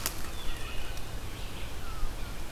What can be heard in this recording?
Wood Thrush, Red-eyed Vireo